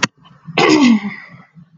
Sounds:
Throat clearing